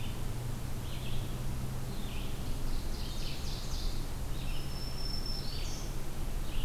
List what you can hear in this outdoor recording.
Red-eyed Vireo, Ovenbird, Black-throated Green Warbler